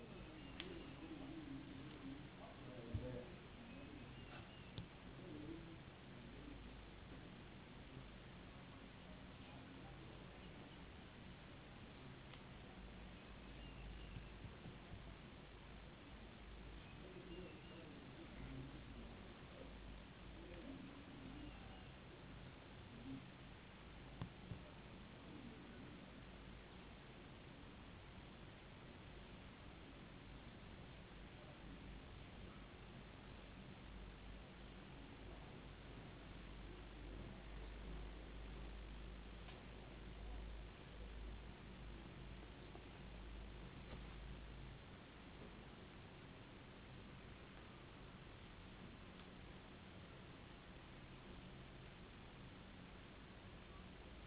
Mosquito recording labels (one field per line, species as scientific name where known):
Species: no mosquito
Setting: insect culture